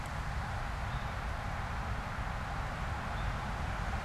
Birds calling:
Eastern Towhee (Pipilo erythrophthalmus)

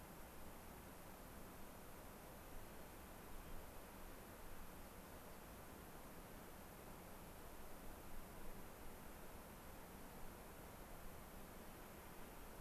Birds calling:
unidentified bird, White-crowned Sparrow (Zonotrichia leucophrys)

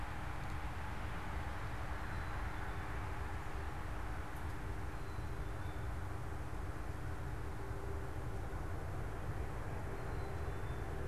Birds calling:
Black-capped Chickadee (Poecile atricapillus)

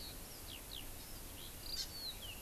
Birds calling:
Hawaii Amakihi (Chlorodrepanis virens), Eurasian Skylark (Alauda arvensis)

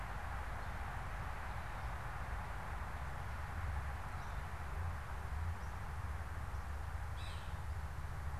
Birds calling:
Yellow-bellied Sapsucker (Sphyrapicus varius)

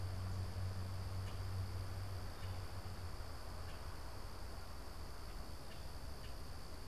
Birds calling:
Common Grackle (Quiscalus quiscula)

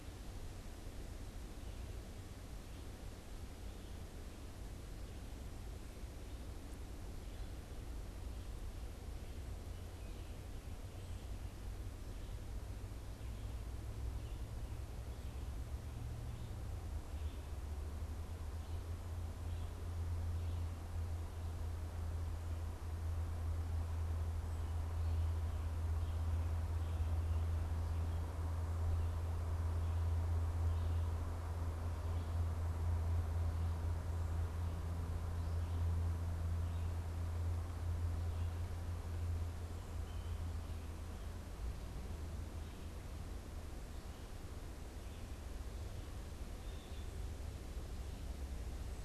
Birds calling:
Blue Jay (Cyanocitta cristata)

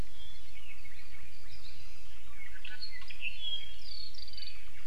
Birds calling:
Apapane (Himatione sanguinea)

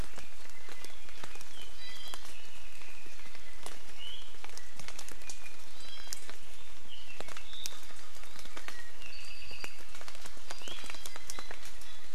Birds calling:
Iiwi (Drepanis coccinea), Apapane (Himatione sanguinea)

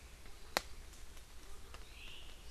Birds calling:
Omao (Myadestes obscurus)

